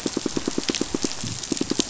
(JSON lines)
{"label": "biophony, pulse", "recorder": "SoundTrap 500"}